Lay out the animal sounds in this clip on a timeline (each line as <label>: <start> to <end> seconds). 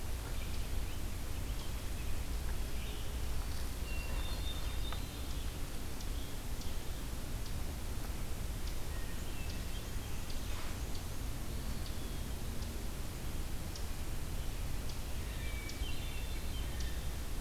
Eastern Wood-Pewee (Contopus virens): 3.7 to 5.3 seconds
Hermit Thrush (Catharus guttatus): 3.8 to 5.0 seconds
Hermit Thrush (Catharus guttatus): 8.5 to 10.3 seconds
Black-and-white Warbler (Mniotilta varia): 9.5 to 11.3 seconds
Hermit Thrush (Catharus guttatus): 15.3 to 17.1 seconds